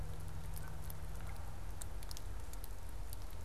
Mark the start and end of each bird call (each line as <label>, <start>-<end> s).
Canada Goose (Branta canadensis), 0.3-1.7 s